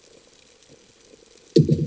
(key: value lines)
label: anthrophony, bomb
recorder: HydroMoth